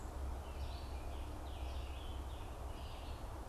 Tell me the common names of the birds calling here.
Red-eyed Vireo, unidentified bird, Scarlet Tanager